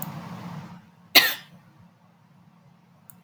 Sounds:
Sniff